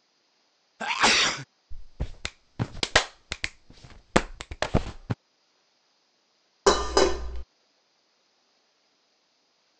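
First, at the start, someone sneezes. Next, about 2 seconds in, clapping can be heard. Finally, about 7 seconds in, the sound of dishes is audible.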